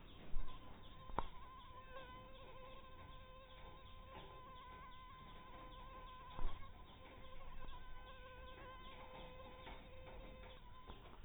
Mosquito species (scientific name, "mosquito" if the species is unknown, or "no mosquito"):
mosquito